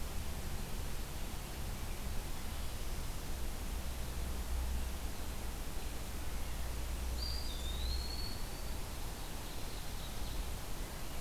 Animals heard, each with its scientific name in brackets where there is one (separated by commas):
Ovenbird (Seiurus aurocapilla), Blackburnian Warbler (Setophaga fusca), Eastern Wood-Pewee (Contopus virens)